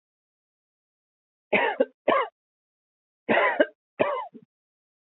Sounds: Cough